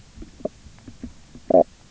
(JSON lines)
{"label": "biophony, knock croak", "recorder": "SoundTrap 300"}